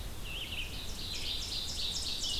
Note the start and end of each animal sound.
[0.00, 2.40] Red-eyed Vireo (Vireo olivaceus)
[0.36, 2.40] Ovenbird (Seiurus aurocapilla)

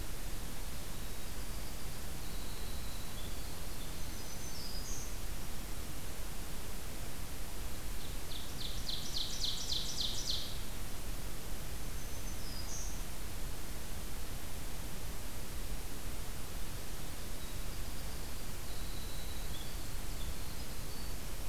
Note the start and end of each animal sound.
[0.42, 4.01] Winter Wren (Troglodytes hiemalis)
[3.90, 5.12] Black-throated Green Warbler (Setophaga virens)
[7.85, 10.54] Ovenbird (Seiurus aurocapilla)
[11.80, 13.07] Black-throated Green Warbler (Setophaga virens)
[17.12, 21.23] Winter Wren (Troglodytes hiemalis)

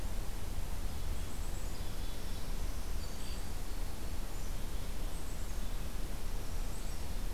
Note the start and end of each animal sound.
[1.19, 2.26] Black-capped Chickadee (Poecile atricapillus)
[2.10, 3.71] Black-throated Green Warbler (Setophaga virens)
[3.06, 3.71] Black-capped Chickadee (Poecile atricapillus)
[5.01, 6.09] Black-capped Chickadee (Poecile atricapillus)
[6.46, 7.18] Black-capped Chickadee (Poecile atricapillus)

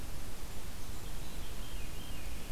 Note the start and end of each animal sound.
[1.06, 2.46] Veery (Catharus fuscescens)

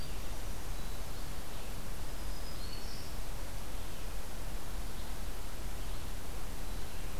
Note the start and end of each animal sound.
[0.00, 1.06] Winter Wren (Troglodytes hiemalis)
[0.00, 7.20] Red-eyed Vireo (Vireo olivaceus)
[1.98, 3.16] Black-throated Green Warbler (Setophaga virens)

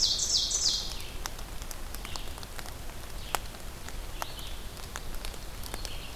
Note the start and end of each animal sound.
[0.00, 1.00] Ovenbird (Seiurus aurocapilla)
[0.00, 6.16] Red-eyed Vireo (Vireo olivaceus)
[4.99, 6.16] Black-throated Green Warbler (Setophaga virens)

